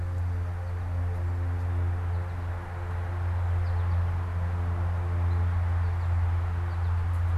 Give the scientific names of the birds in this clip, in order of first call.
Spinus tristis